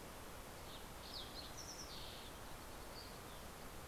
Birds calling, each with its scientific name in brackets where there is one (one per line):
Western Tanager (Piranga ludoviciana)
Fox Sparrow (Passerella iliaca)